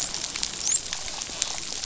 {"label": "biophony, dolphin", "recorder": "SoundTrap 500"}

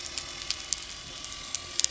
{"label": "anthrophony, boat engine", "recorder": "SoundTrap 300"}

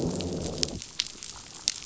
{"label": "biophony, growl", "recorder": "SoundTrap 500"}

